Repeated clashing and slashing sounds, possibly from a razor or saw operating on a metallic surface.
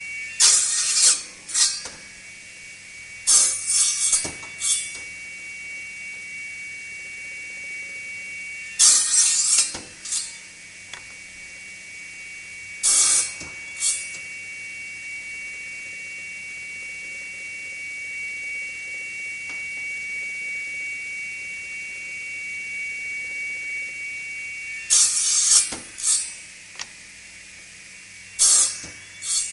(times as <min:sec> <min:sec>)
0:03.0 0:05.1